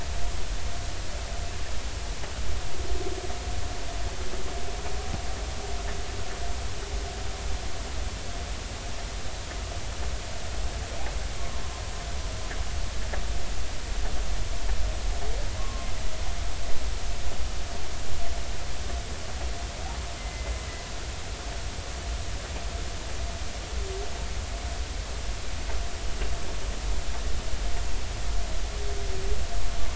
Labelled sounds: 11.4	11.6	humpback whale, 0.99 to 1.2 kHz
15.6	15.9	humpback whale, 1.0 to 1.2 kHz
20.2	20.5	humpback whale, 2.0 to 2.1 kHz

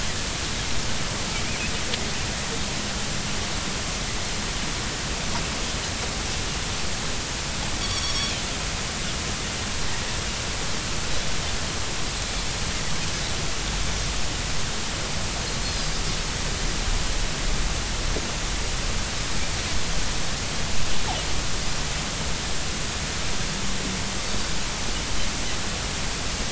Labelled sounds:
7.8	8.3	Pacific white-sided dolphin, 3.2 to 5.8 kHz
15.7	16.0	Pacific white-sided dolphin, 4.6 to 4.9 kHz

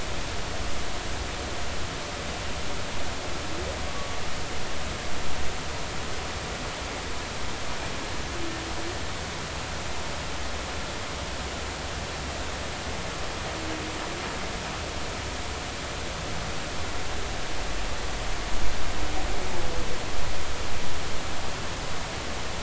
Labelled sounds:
3.9	4.2	humpback whale, 1.1 to 1.2 kHz

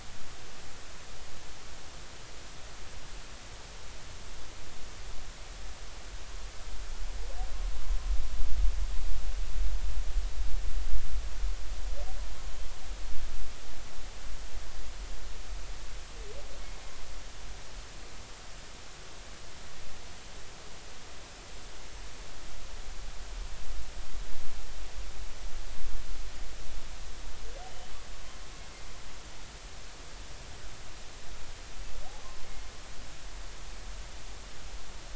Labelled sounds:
32.2	32.5	humpback whale, 0.99 to 1.2 kHz

